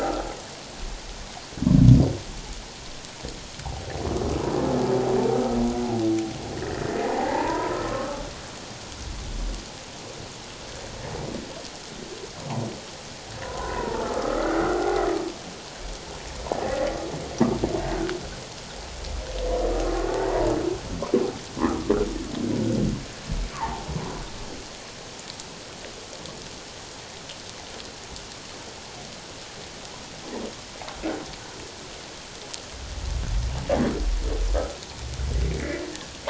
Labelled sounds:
5.3	5.6	humpback whale, 1.2 to 1.3 kHz
6.5	8.3	humpback whale, 0.78 to 2.0 kHz
13.4	15.0	humpback whale, 0.78 to 2.2 kHz
16.6	16.9	humpback whale, 1.7 to 2.0 kHz
17.8	18.1	humpback whale, 1.4 to 1.7 kHz
20.1	20.5	humpback whale, 0.84 to 2.0 kHz
21.6	21.9	humpback whale, 0.94 to 1.4 kHz
23.5	23.9	humpback whale, 0.78 to 1.2 kHz
35.5	35.8	humpback whale, 1.9 to 2.4 kHz

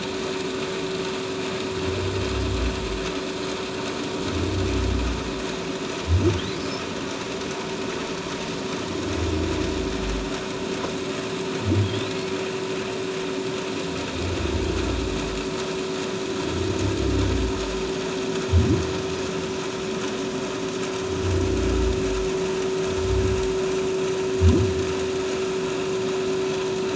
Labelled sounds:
11.8	12.1	humpback whale, 3.2 to 4.1 kHz

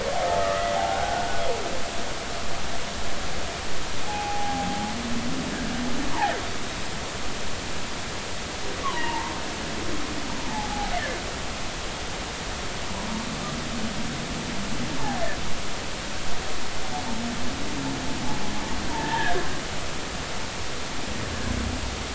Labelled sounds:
0.4	1.4	humpback whale, 0.80 to 1.6 kHz
4.0	4.7	humpback whale, 0.80 to 0.90 kHz
8.8	9.3	humpback whale, 0.83 to 3.3 kHz
10.5	10.9	humpback whale, 0.80 to 0.93 kHz
18.9	19.4	humpback whale, 0.83 to 1.9 kHz

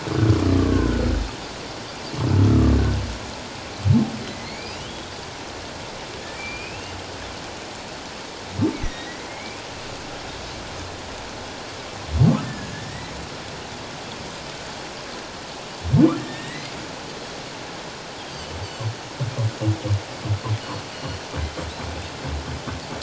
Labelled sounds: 0.5	1.0	humpback whale, 1.0 to 1.6 kHz
2.5	2.8	humpback whale, 1.1 to 1.4 kHz
4.2	4.9	humpback whale, 2.0 to 5.1 kHz
6.4	7.0	humpback whale, 2.3 to 2.9 kHz
8.8	9.6	humpback whale, 1.8 to 2.5 kHz
12.4	13.1	humpback whale, 1.6 to 2.0 kHz
16.2	16.7	humpback whale, 1.7 to 4.3 kHz
18.2	18.6	Pacific white-sided dolphin, 2.9 to 3.5 kHz
20.9	21.2	Pacific white-sided dolphin, 2.8 to 4.6 kHz

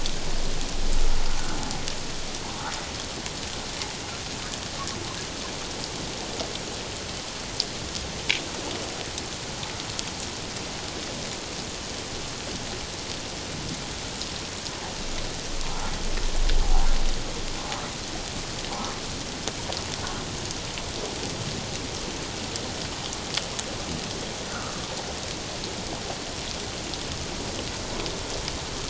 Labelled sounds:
16.6	16.9	humpback whale, 0.78 to 1.0 kHz
24.5	24.7	humpback whale, 1.2 to 1.6 kHz

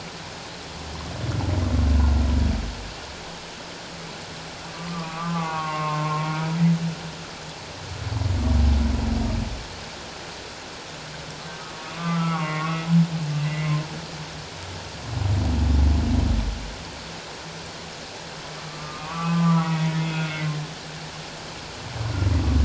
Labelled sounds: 4.7	6.5	humpback whale, 0.78 to 2.2 kHz
11.9	13.8	humpback whale, 0.88 to 2.3 kHz
18.7	20.4	humpback whale, 0.91 to 3.4 kHz

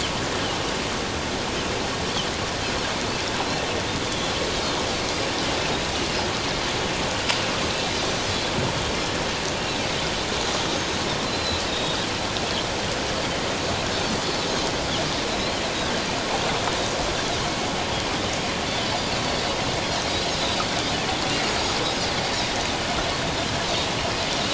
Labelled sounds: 4.1	4.3	Pacific white-sided dolphin, 3.2 to 3.7 kHz
11.2	12.0	Pacific white-sided dolphin, 3.6 to 4.2 kHz
15.3	15.6	Pacific white-sided dolphin, 3.8 to 4.4 kHz
20.1	20.4	Pacific white-sided dolphin, 6.5 to 6.8 kHz
21.8	22.1	Pacific white-sided dolphin, 4.7 to 5.2 kHz

